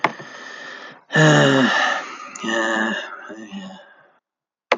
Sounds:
Sigh